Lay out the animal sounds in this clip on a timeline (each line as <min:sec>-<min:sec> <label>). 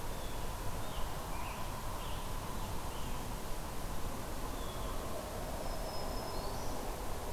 0:00.0-0:03.2 Scarlet Tanager (Piranga olivacea)
0:04.4-0:05.0 Blue Jay (Cyanocitta cristata)
0:05.4-0:06.8 Black-throated Green Warbler (Setophaga virens)